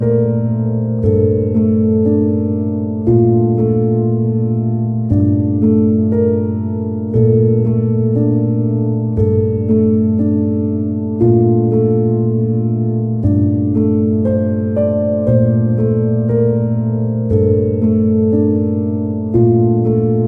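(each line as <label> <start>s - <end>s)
A piano is played rhythmically, creating sad music. 0.0s - 20.3s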